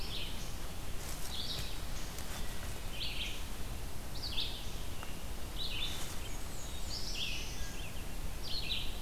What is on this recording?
Red-eyed Vireo, Black-and-white Warbler, Black-throated Blue Warbler